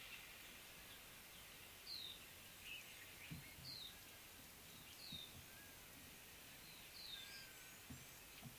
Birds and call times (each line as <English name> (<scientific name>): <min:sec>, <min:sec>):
Pale White-eye (Zosterops flavilateralis): 0:02.0